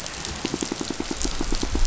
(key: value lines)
label: biophony, pulse
recorder: SoundTrap 500